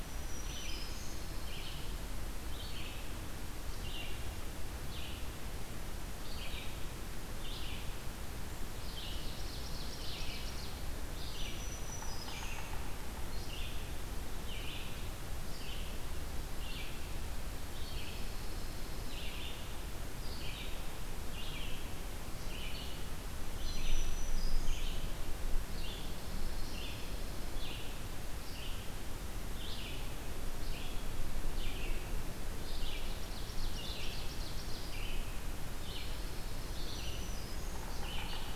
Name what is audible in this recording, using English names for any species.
Black-throated Green Warbler, Red-eyed Vireo, Pine Warbler, Ovenbird, Yellow-bellied Sapsucker